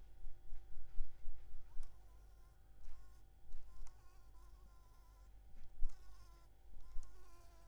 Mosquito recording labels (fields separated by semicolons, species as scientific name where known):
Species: Anopheles maculipalpis; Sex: female; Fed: unfed; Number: one; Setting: cup